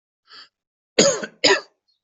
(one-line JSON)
{"expert_labels": [{"quality": "good", "cough_type": "unknown", "dyspnea": false, "wheezing": false, "stridor": false, "choking": false, "congestion": false, "nothing": true, "diagnosis": "lower respiratory tract infection", "severity": "mild"}], "age": 43, "gender": "male", "respiratory_condition": true, "fever_muscle_pain": false, "status": "COVID-19"}